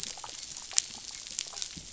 {"label": "biophony, dolphin", "recorder": "SoundTrap 500"}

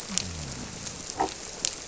{"label": "biophony", "recorder": "SoundTrap 300"}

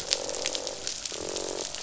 {"label": "biophony, croak", "recorder": "SoundTrap 500"}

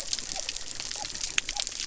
{"label": "biophony", "recorder": "SoundTrap 300"}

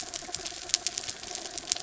{"label": "anthrophony, mechanical", "recorder": "SoundTrap 300"}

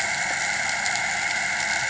{"label": "anthrophony, boat engine", "recorder": "HydroMoth"}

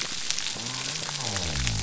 {"label": "biophony", "recorder": "SoundTrap 300"}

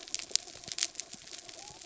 {"label": "anthrophony, mechanical", "recorder": "SoundTrap 300"}
{"label": "biophony", "recorder": "SoundTrap 300"}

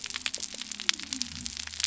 {"label": "biophony", "recorder": "SoundTrap 300"}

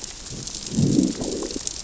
{"label": "biophony, growl", "recorder": "SoundTrap 600 or HydroMoth"}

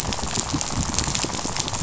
{"label": "biophony, rattle", "recorder": "SoundTrap 500"}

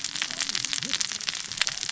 {"label": "biophony, cascading saw", "recorder": "SoundTrap 600 or HydroMoth"}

